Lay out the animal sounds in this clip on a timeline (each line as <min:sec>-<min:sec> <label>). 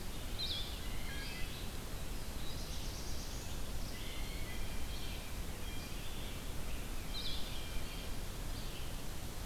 0:00.0-0:09.5 Blue-headed Vireo (Vireo solitarius)
0:00.0-0:09.5 Red-eyed Vireo (Vireo olivaceus)
0:00.2-0:01.6 Blue Jay (Cyanocitta cristata)
0:01.9-0:03.7 Black-throated Blue Warbler (Setophaga caerulescens)
0:03.8-0:04.7 Blue Jay (Cyanocitta cristata)
0:06.9-0:08.0 Blue Jay (Cyanocitta cristata)